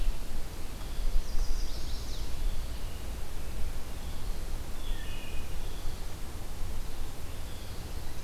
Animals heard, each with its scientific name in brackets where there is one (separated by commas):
Chestnut-sided Warbler (Setophaga pensylvanica), Wood Thrush (Hylocichla mustelina)